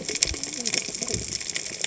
{"label": "biophony, cascading saw", "recorder": "HydroMoth"}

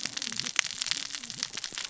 {"label": "biophony, cascading saw", "recorder": "SoundTrap 600 or HydroMoth"}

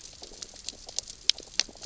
{"label": "biophony, grazing", "recorder": "SoundTrap 600 or HydroMoth"}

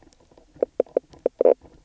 {"label": "biophony, knock croak", "recorder": "SoundTrap 300"}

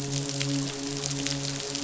{"label": "biophony, midshipman", "recorder": "SoundTrap 500"}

